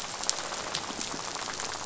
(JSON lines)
{"label": "biophony, rattle", "recorder": "SoundTrap 500"}